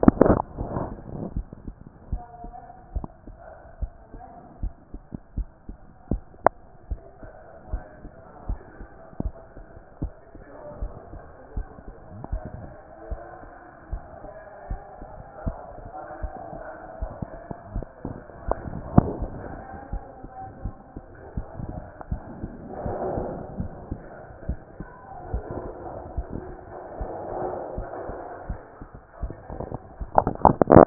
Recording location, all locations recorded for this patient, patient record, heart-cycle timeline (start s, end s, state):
mitral valve (MV)
aortic valve (AV)+pulmonary valve (PV)+tricuspid valve (TV)+mitral valve (MV)
#Age: nan
#Sex: Female
#Height: nan
#Weight: nan
#Pregnancy status: True
#Murmur: Absent
#Murmur locations: nan
#Most audible location: nan
#Systolic murmur timing: nan
#Systolic murmur shape: nan
#Systolic murmur grading: nan
#Systolic murmur pitch: nan
#Systolic murmur quality: nan
#Diastolic murmur timing: nan
#Diastolic murmur shape: nan
#Diastolic murmur grading: nan
#Diastolic murmur pitch: nan
#Diastolic murmur quality: nan
#Outcome: Normal
#Campaign: 2014 screening campaign
0.00	1.34	unannotated
1.34	1.46	S1
1.46	1.64	systole
1.64	1.74	S2
1.74	2.10	diastole
2.10	2.22	S1
2.22	2.42	systole
2.42	2.52	S2
2.52	2.94	diastole
2.94	3.06	S1
3.06	3.28	systole
3.28	3.36	S2
3.36	3.80	diastole
3.80	3.92	S1
3.92	4.12	systole
4.12	4.22	S2
4.22	4.62	diastole
4.62	4.72	S1
4.72	4.92	systole
4.92	5.02	S2
5.02	5.36	diastole
5.36	5.48	S1
5.48	5.68	systole
5.68	5.78	S2
5.78	6.10	diastole
6.10	6.22	S1
6.22	6.44	systole
6.44	6.54	S2
6.54	6.90	diastole
6.90	7.00	S1
7.00	7.22	systole
7.22	7.32	S2
7.32	7.70	diastole
7.70	7.82	S1
7.82	8.02	systole
8.02	8.12	S2
8.12	8.48	diastole
8.48	8.60	S1
8.60	8.80	systole
8.80	8.88	S2
8.88	9.22	diastole
9.22	9.34	S1
9.34	9.56	systole
9.56	9.64	S2
9.64	10.00	diastole
10.00	10.12	S1
10.12	10.34	systole
10.34	10.44	S2
10.44	10.80	diastole
10.80	10.92	S1
10.92	11.12	systole
11.12	11.22	S2
11.22	11.56	diastole
11.56	11.66	S1
11.66	11.84	systole
11.84	11.94	S2
11.94	12.32	diastole
12.32	12.42	S1
12.42	12.58	systole
12.58	12.68	S2
12.68	13.10	diastole
13.10	13.20	S1
13.20	13.40	systole
13.40	13.50	S2
13.50	13.90	diastole
13.90	14.02	S1
14.02	14.24	systole
14.24	14.32	S2
14.32	14.70	diastole
14.70	14.80	S1
14.80	15.00	systole
15.00	15.10	S2
15.10	15.44	diastole
15.44	15.56	S1
15.56	15.78	systole
15.78	15.88	S2
15.88	16.22	diastole
16.22	16.32	S1
16.32	16.52	systole
16.52	16.62	S2
16.62	17.00	diastole
17.00	17.10	S1
17.10	17.22	systole
17.22	17.38	S2
17.38	17.74	diastole
17.74	17.86	S1
17.86	18.06	systole
18.06	18.16	S2
18.16	18.48	diastole
18.48	18.58	S1
18.58	18.72	systole
18.72	18.82	S2
18.82	19.18	diastole
19.18	19.28	S1
19.28	19.48	systole
19.48	19.56	S2
19.56	19.92	diastole
19.92	20.02	S1
20.02	20.22	systole
20.22	20.30	S2
20.30	20.64	diastole
20.64	20.74	S1
20.74	20.94	systole
20.94	21.02	S2
21.02	21.36	diastole
21.36	21.46	S1
21.46	21.60	systole
21.60	21.72	S2
21.72	22.10	diastole
22.10	22.22	S1
22.22	22.42	systole
22.42	22.52	S2
22.52	22.84	diastole
22.84	22.98	S1
22.98	23.14	systole
23.14	23.24	S2
23.24	23.58	diastole
23.58	23.70	S1
23.70	23.90	systole
23.90	24.00	S2
24.00	24.46	diastole
24.46	24.58	S1
24.58	24.78	systole
24.78	24.88	S2
24.88	25.32	diastole
25.32	25.44	S1
25.44	25.58	systole
25.58	25.72	S2
25.72	26.16	diastole
26.16	26.26	S1
26.26	26.44	systole
26.44	26.56	S2
26.56	27.00	diastole
27.00	27.10	S1
27.10	27.26	systole
27.26	27.36	S2
27.36	27.76	diastole
27.76	27.88	S1
27.88	28.08	systole
28.08	28.18	S2
28.18	28.48	diastole
28.48	28.58	S1
28.58	28.76	systole
28.76	28.88	S2
28.88	29.22	diastole
29.22	30.86	unannotated